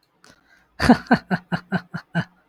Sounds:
Laughter